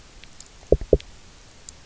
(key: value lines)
label: biophony, knock
recorder: SoundTrap 300